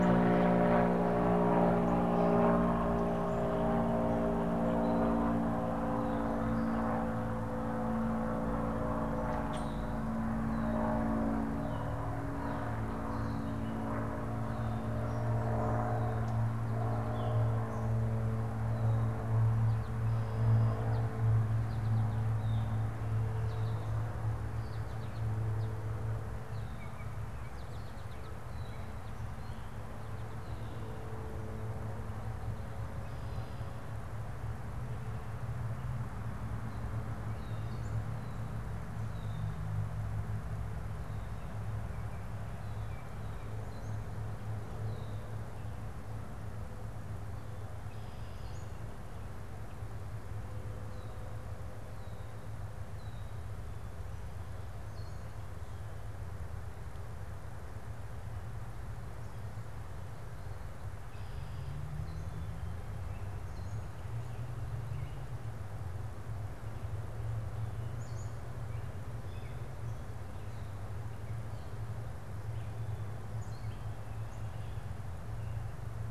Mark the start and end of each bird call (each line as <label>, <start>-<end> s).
Common Grackle (Quiscalus quiscula), 9.4-10.0 s
American Goldfinch (Spinus tristis), 20.6-29.7 s
Gray Catbird (Dumetella carolinensis), 61.8-73.9 s